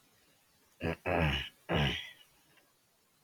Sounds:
Throat clearing